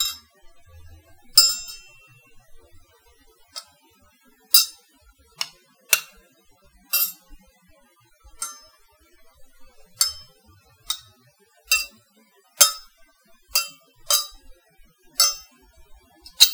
Is someone using a tool?
yes